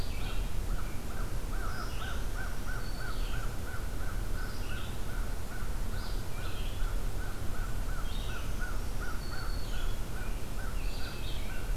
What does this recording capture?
American Robin, American Crow, Red-eyed Vireo, Black-throated Green Warbler